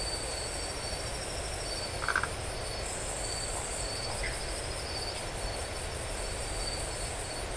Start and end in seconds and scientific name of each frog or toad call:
1.9	2.3	Phyllomedusa distincta
4.2	4.4	Dendropsophus elegans